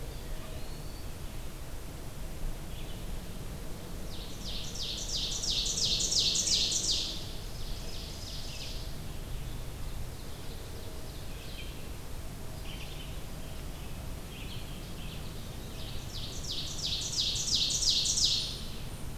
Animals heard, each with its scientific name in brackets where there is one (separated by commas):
Eastern Wood-Pewee (Contopus virens), Ovenbird (Seiurus aurocapilla), Wood Thrush (Hylocichla mustelina), Red-eyed Vireo (Vireo olivaceus)